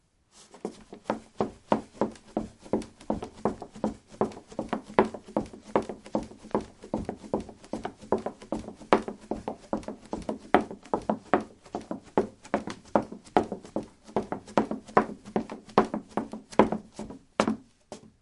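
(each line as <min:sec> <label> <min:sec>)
0:00.0 A person is running on a wooden floor wearing hard shoes, making stepping sounds. 0:18.2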